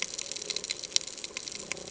{"label": "ambient", "recorder": "HydroMoth"}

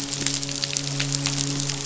{"label": "biophony, midshipman", "recorder": "SoundTrap 500"}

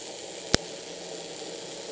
{"label": "anthrophony, boat engine", "recorder": "HydroMoth"}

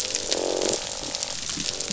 {"label": "biophony, croak", "recorder": "SoundTrap 500"}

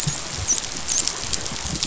{"label": "biophony, dolphin", "recorder": "SoundTrap 500"}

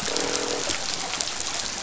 {"label": "biophony, croak", "recorder": "SoundTrap 500"}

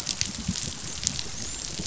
{"label": "biophony, dolphin", "recorder": "SoundTrap 500"}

